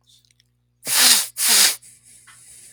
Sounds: Sniff